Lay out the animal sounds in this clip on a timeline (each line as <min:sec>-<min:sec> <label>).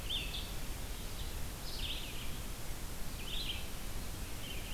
0:00.0-0:00.6 Black-throated Green Warbler (Setophaga virens)
0:00.0-0:04.7 Red-eyed Vireo (Vireo olivaceus)